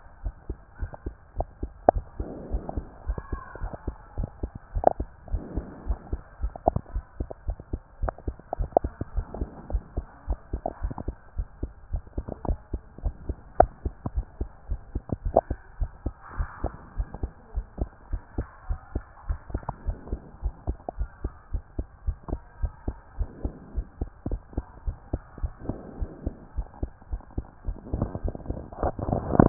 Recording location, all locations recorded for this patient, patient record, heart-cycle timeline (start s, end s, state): pulmonary valve (PV)
aortic valve (AV)+pulmonary valve (PV)+tricuspid valve (TV)+mitral valve (MV)
#Age: Child
#Sex: Male
#Height: 161.0 cm
#Weight: 61.3 kg
#Pregnancy status: False
#Murmur: Absent
#Murmur locations: nan
#Most audible location: nan
#Systolic murmur timing: nan
#Systolic murmur shape: nan
#Systolic murmur grading: nan
#Systolic murmur pitch: nan
#Systolic murmur quality: nan
#Diastolic murmur timing: nan
#Diastolic murmur shape: nan
#Diastolic murmur grading: nan
#Diastolic murmur pitch: nan
#Diastolic murmur quality: nan
#Outcome: Abnormal
#Campaign: 2014 screening campaign
0.00	0.24	diastole
0.24	0.34	S1
0.34	0.48	systole
0.48	0.58	S2
0.58	0.80	diastole
0.80	0.90	S1
0.90	1.06	systole
1.06	1.14	S2
1.14	1.36	diastole
1.36	1.48	S1
1.48	1.62	systole
1.62	1.72	S2
1.72	1.92	diastole
1.92	2.04	S1
2.04	2.18	systole
2.18	2.28	S2
2.28	2.50	diastole
2.50	2.62	S1
2.62	2.76	systole
2.76	2.84	S2
2.84	3.06	diastole
3.06	3.18	S1
3.18	3.32	systole
3.32	3.40	S2
3.40	3.60	diastole
3.60	3.72	S1
3.72	3.86	systole
3.86	3.96	S2
3.96	4.18	diastole
4.18	4.28	S1
4.28	4.42	systole
4.42	4.50	S2
4.50	4.74	diastole
4.74	4.86	S1
4.86	4.98	systole
4.98	5.08	S2
5.08	5.30	diastole
5.30	5.42	S1
5.42	5.56	systole
5.56	5.66	S2
5.66	5.86	diastole
5.86	5.98	S1
5.98	6.12	systole
6.12	6.20	S2
6.20	6.42	diastole
6.42	6.52	S1
6.52	6.66	systole
6.66	6.80	S2
6.80	6.94	diastole
6.94	7.04	S1
7.04	7.18	systole
7.18	7.28	S2
7.28	7.46	diastole
7.46	7.58	S1
7.58	7.72	systole
7.72	7.80	S2
7.80	8.02	diastole
8.02	8.12	S1
8.12	8.26	systole
8.26	8.36	S2
8.36	8.58	diastole
8.58	8.70	S1
8.70	8.82	systole
8.82	8.92	S2
8.92	9.14	diastole
9.14	9.26	S1
9.26	9.38	systole
9.38	9.48	S2
9.48	9.70	diastole
9.70	9.82	S1
9.82	9.96	systole
9.96	10.06	S2
10.06	10.28	diastole
10.28	10.38	S1
10.38	10.52	systole
10.52	10.62	S2
10.62	10.82	diastole
10.82	10.94	S1
10.94	11.06	systole
11.06	11.16	S2
11.16	11.36	diastole
11.36	11.48	S1
11.48	11.62	systole
11.62	11.72	S2
11.72	11.92	diastole
11.92	12.02	S1
12.02	12.16	systole
12.16	12.26	S2
12.26	12.46	diastole
12.46	12.58	S1
12.58	12.72	systole
12.72	12.82	S2
12.82	13.04	diastole
13.04	13.14	S1
13.14	13.28	systole
13.28	13.36	S2
13.36	13.58	diastole
13.58	13.70	S1
13.70	13.84	systole
13.84	13.94	S2
13.94	14.14	diastole
14.14	14.26	S1
14.26	14.40	systole
14.40	14.48	S2
14.48	14.70	diastole
14.70	14.80	S1
14.80	14.94	systole
14.94	15.02	S2
15.02	15.24	diastole
15.24	15.36	S1
15.36	15.50	systole
15.50	15.58	S2
15.58	15.78	diastole
15.78	15.90	S1
15.90	16.04	systole
16.04	16.14	S2
16.14	16.36	diastole
16.36	16.48	S1
16.48	16.62	systole
16.62	16.72	S2
16.72	16.96	diastole
16.96	17.08	S1
17.08	17.22	systole
17.22	17.30	S2
17.30	17.54	diastole
17.54	17.66	S1
17.66	17.80	systole
17.80	17.90	S2
17.90	18.10	diastole
18.10	18.22	S1
18.22	18.36	systole
18.36	18.46	S2
18.46	18.68	diastole
18.68	18.80	S1
18.80	18.94	systole
18.94	19.04	S2
19.04	19.28	diastole
19.28	19.38	S1
19.38	19.52	systole
19.52	19.62	S2
19.62	19.86	diastole
19.86	19.98	S1
19.98	20.10	systole
20.10	20.20	S2
20.20	20.42	diastole
20.42	20.54	S1
20.54	20.66	systole
20.66	20.76	S2
20.76	20.98	diastole
20.98	21.10	S1
21.10	21.22	systole
21.22	21.32	S2
21.32	21.52	diastole
21.52	21.62	S1
21.62	21.78	systole
21.78	21.86	S2
21.86	22.06	diastole
22.06	22.18	S1
22.18	22.30	systole
22.30	22.40	S2
22.40	22.60	diastole
22.60	22.72	S1
22.72	22.86	systole
22.86	22.96	S2
22.96	23.18	diastole
23.18	23.30	S1
23.30	23.42	systole
23.42	23.54	S2
23.54	23.74	diastole
23.74	23.86	S1
23.86	24.00	systole
24.00	24.08	S2
24.08	24.28	diastole
24.28	24.40	S1
24.40	24.56	systole
24.56	24.66	S2
24.66	24.86	diastole
24.86	24.96	S1
24.96	25.12	systole
25.12	25.22	S2
25.22	25.42	diastole
25.42	25.52	S1
25.52	25.68	systole
25.68	25.76	S2
25.76	25.98	diastole
25.98	26.10	S1
26.10	26.24	systole
26.24	26.34	S2
26.34	26.56	diastole
26.56	26.68	S1
26.68	26.82	systole
26.82	26.90	S2
26.90	27.10	diastole
27.10	27.22	S1
27.22	27.36	systole
27.36	27.46	S2
27.46	27.66	diastole